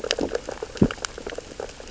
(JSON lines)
{"label": "biophony, sea urchins (Echinidae)", "recorder": "SoundTrap 600 or HydroMoth"}